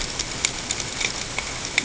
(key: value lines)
label: ambient
recorder: HydroMoth